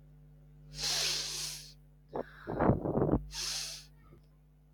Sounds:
Sniff